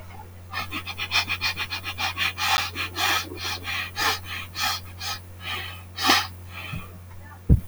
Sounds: Sniff